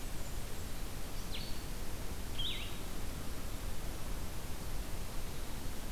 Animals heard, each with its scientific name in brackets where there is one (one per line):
Blue-headed Vireo (Vireo solitarius)
Blackburnian Warbler (Setophaga fusca)